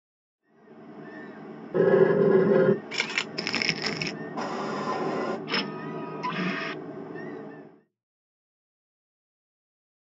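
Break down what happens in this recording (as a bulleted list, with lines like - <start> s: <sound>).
- 0.4 s: the sound of the ocean fades in, then fades out
- 1.7 s: furniture moving can be heard
- 2.9 s: you can hear a single-lens reflex camera
- 3.4 s: crumpling is heard
- 4.4 s: the sound of a vacuum cleaner
- 5.5 s: a printer can be heard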